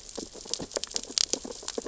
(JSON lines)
{"label": "biophony, sea urchins (Echinidae)", "recorder": "SoundTrap 600 or HydroMoth"}